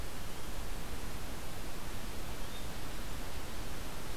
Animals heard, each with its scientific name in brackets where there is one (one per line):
Yellow-bellied Flycatcher (Empidonax flaviventris)